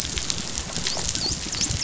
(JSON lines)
{"label": "biophony, dolphin", "recorder": "SoundTrap 500"}